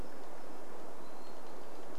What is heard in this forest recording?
Hermit Thrush call, tree creak